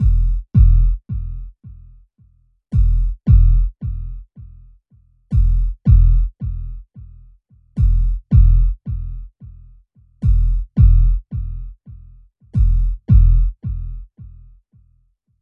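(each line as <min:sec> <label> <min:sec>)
0:00.0 An alarm is sounding repetitively. 0:15.1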